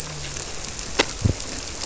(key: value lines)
label: biophony
recorder: SoundTrap 300